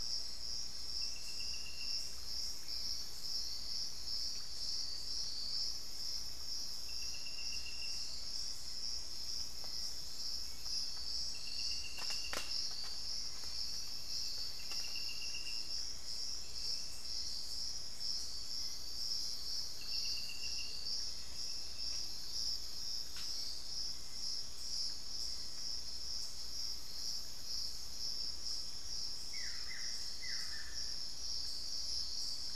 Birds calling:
Buff-throated Woodcreeper (Xiphorhynchus guttatus), unidentified bird, Amazonian Motmot (Momotus momota), Hauxwell's Thrush (Turdus hauxwelli)

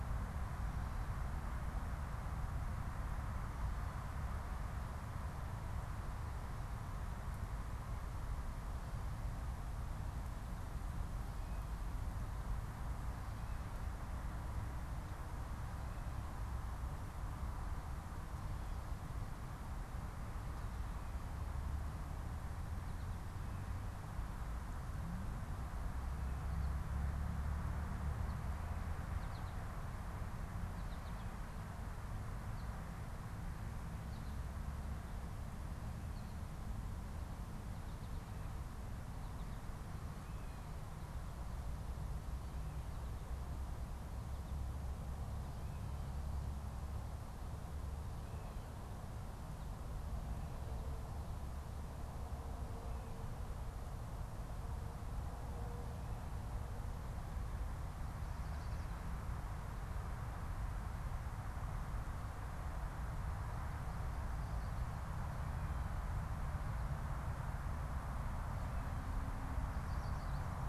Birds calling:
American Goldfinch (Spinus tristis), Yellow Warbler (Setophaga petechia)

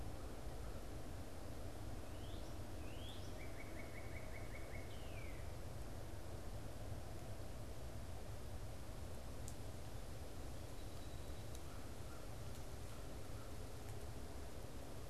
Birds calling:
Northern Cardinal (Cardinalis cardinalis), American Crow (Corvus brachyrhynchos)

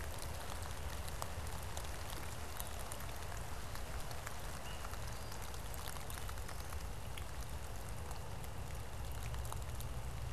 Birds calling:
Veery (Catharus fuscescens)

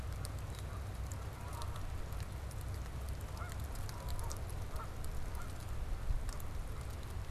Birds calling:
Canada Goose (Branta canadensis)

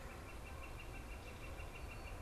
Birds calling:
Northern Flicker (Colaptes auratus), Great Crested Flycatcher (Myiarchus crinitus)

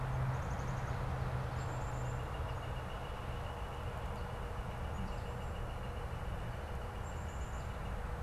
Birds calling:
Northern Flicker (Colaptes auratus), Black-capped Chickadee (Poecile atricapillus), unidentified bird

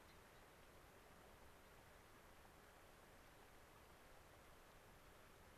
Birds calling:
Gray-crowned Rosy-Finch (Leucosticte tephrocotis)

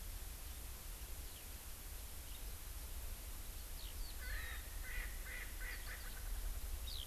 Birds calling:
Erckel's Francolin (Pternistis erckelii)

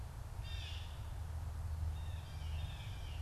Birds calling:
Blue Jay (Cyanocitta cristata)

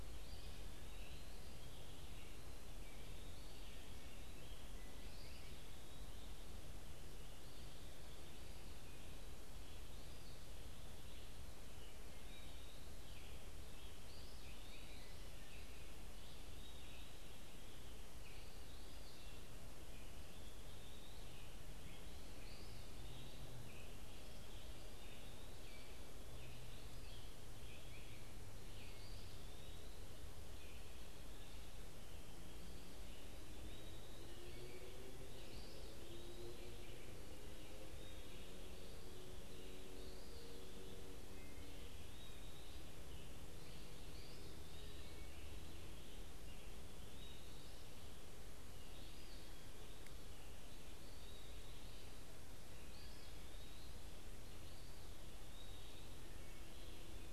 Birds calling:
Eastern Wood-Pewee (Contopus virens), Red-eyed Vireo (Vireo olivaceus), American Robin (Turdus migratorius)

